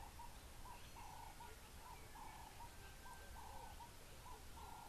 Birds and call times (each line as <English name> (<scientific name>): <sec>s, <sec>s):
Ring-necked Dove (Streptopelia capicola): 3.4s